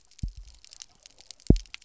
{"label": "biophony, double pulse", "recorder": "SoundTrap 300"}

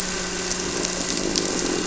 {"label": "anthrophony, boat engine", "recorder": "SoundTrap 300"}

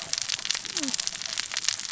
{"label": "biophony, cascading saw", "recorder": "SoundTrap 600 or HydroMoth"}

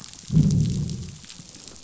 {"label": "biophony, growl", "recorder": "SoundTrap 500"}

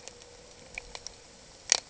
{"label": "ambient", "recorder": "HydroMoth"}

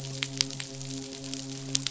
{"label": "biophony, midshipman", "recorder": "SoundTrap 500"}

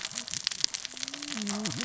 {"label": "biophony, cascading saw", "recorder": "SoundTrap 600 or HydroMoth"}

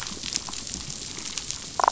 {"label": "biophony", "recorder": "SoundTrap 500"}
{"label": "biophony, damselfish", "recorder": "SoundTrap 500"}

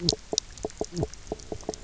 {"label": "biophony, knock croak", "recorder": "SoundTrap 300"}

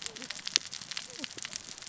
{"label": "biophony, cascading saw", "recorder": "SoundTrap 600 or HydroMoth"}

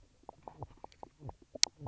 {"label": "biophony, knock croak", "recorder": "SoundTrap 300"}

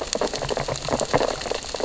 {"label": "biophony, sea urchins (Echinidae)", "recorder": "SoundTrap 600 or HydroMoth"}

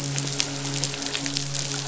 {"label": "biophony, midshipman", "recorder": "SoundTrap 500"}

